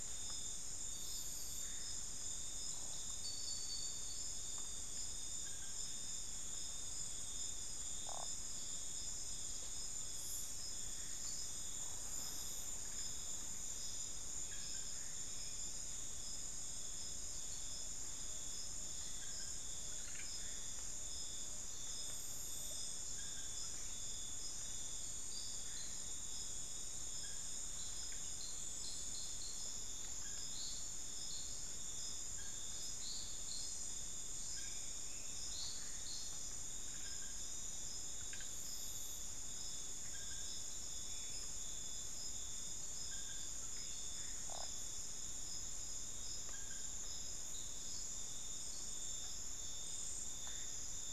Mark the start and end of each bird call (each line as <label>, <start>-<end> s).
Tawny-bellied Screech-Owl (Megascops watsonii), 16.7-22.9 s